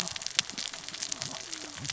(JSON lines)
{"label": "biophony, cascading saw", "recorder": "SoundTrap 600 or HydroMoth"}